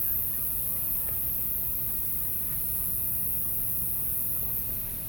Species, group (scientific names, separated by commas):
Neoconocephalus retusus, Orthoptera